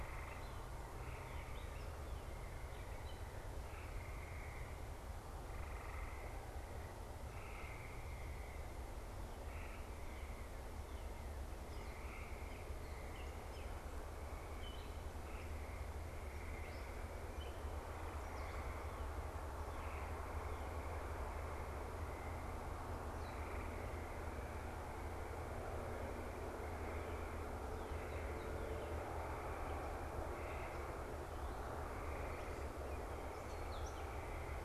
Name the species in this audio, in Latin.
unidentified bird, Dumetella carolinensis